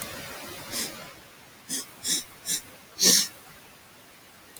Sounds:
Sniff